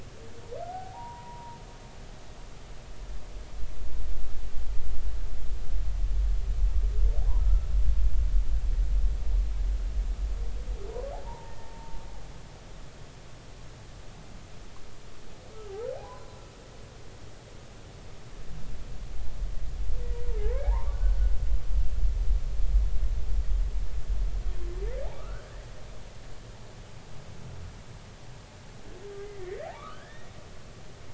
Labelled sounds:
0.6	1.6	humpback whale, 0.80 to 1.5 kHz
11.1	12.0	humpback whale, 0.80 to 1.9 kHz
15.9	16.4	humpback whale, 0.80 to 1.1 kHz
20.4	21.3	humpback whale, 0.80 to 2.3 kHz
25.2	25.4	humpback whale, 1.1 to 1.6 kHz
29.7	30.3	humpback whale, 1.0 to 1.9 kHz

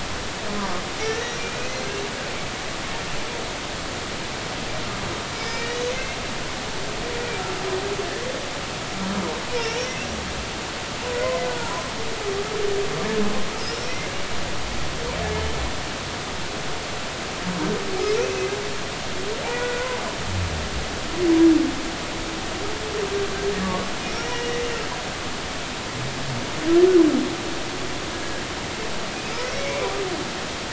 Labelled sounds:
1.2	1.9	humpback whale, 1.1 to 5.8 kHz
5.4	5.9	humpback whale, 1.8 to 5.2 kHz
10.6	11.8	humpback whale, 0.90 to 5.7 kHz
13.6	14.0	humpback whale, 4.9 to 5.8 kHz
18.2	18.5	humpback whale, 2.4 to 2.7 kHz
19.5	19.9	humpback whale, 1.4 to 2.0 kHz
23.6	23.9	humpback whale, 1.1 to 1.2 kHz
24.3	24.6	humpback whale, 1.9 to 3.0 kHz
28.1	28.4	humpback whale, 1.6 to 1.7 kHz
29.5	29.9	humpback whale, 2.1 to 2.4 kHz

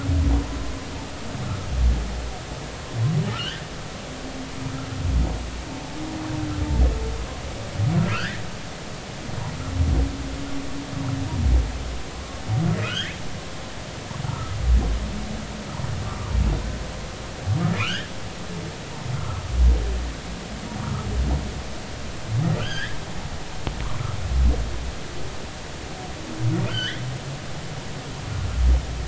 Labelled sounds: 1.4	1.7	humpback whale, 1.2 to 1.5 kHz
3.3	3.6	humpback whale, 1.2 to 1.9 kHz
8.1	8.4	humpback whale, 1.2 to 2.0 kHz
12.8	13.1	humpback whale, 1.2 to 2.2 kHz
14.2	14.6	humpback whale, 1.2 to 1.4 kHz
16.1	16.3	humpback whale, 1.1 to 1.3 kHz
17.8	18.1	humpback whale, 0.99 to 3.4 kHz
19.1	19.4	humpback whale, 1.0 to 1.4 kHz
22.6	23.0	humpback whale, 1.3 to 3.6 kHz
26.7	27.0	humpback whale, 1.3 to 3.6 kHz

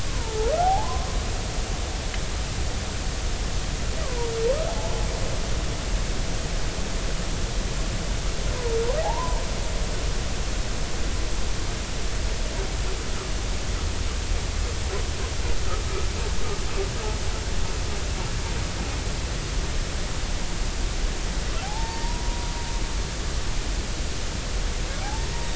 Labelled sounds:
0.1	1.1	humpback whale, 0.80 to 1.2 kHz
4.0	4.3	humpback whale, 0.90 to 1.3 kHz
9.0	9.4	humpback whale, 0.80 to 1.1 kHz
21.6	22.5	humpback whale, 0.80 to 1.9 kHz
25.0	25.3	humpback whale, 0.80 to 0.96 kHz

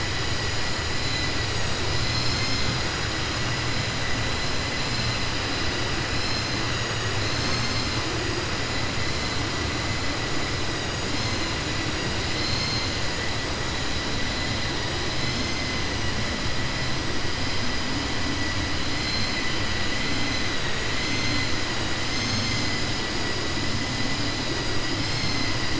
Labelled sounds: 19.7	20.4	vessel noise, 2.0 to 4.1 kHz

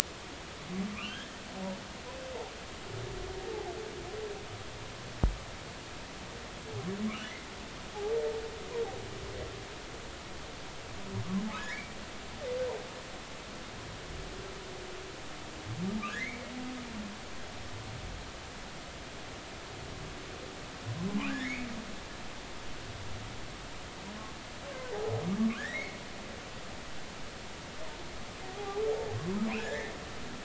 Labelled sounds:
0.9	1.4	humpback whale, 1.1 to 3.3 kHz
11.6	12.0	humpback whale, 1.5 to 2.4 kHz
16.1	16.5	humpback whale, 1.5 to 2.4 kHz
21.3	21.7	humpback whale, 1.4 to 2.6 kHz
25.5	26.0	humpback whale, 1.3 to 2.3 kHz
28.5	28.8	humpback whale, 0.80 to 0.90 kHz
29.6	29.9	humpback whale, 1.6 to 2.3 kHz

